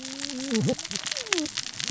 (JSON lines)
{"label": "biophony, cascading saw", "recorder": "SoundTrap 600 or HydroMoth"}